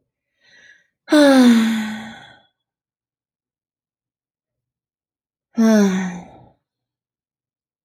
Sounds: Sigh